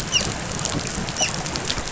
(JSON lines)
{"label": "biophony, dolphin", "recorder": "SoundTrap 500"}